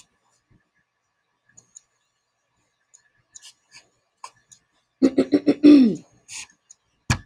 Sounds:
Throat clearing